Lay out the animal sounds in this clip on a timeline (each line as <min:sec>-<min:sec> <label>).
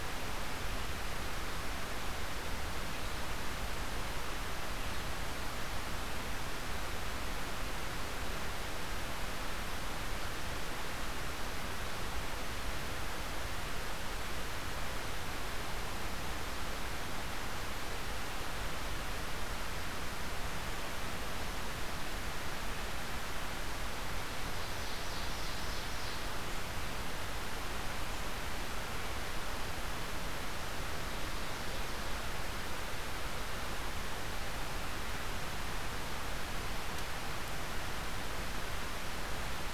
0:24.6-0:26.3 Ovenbird (Seiurus aurocapilla)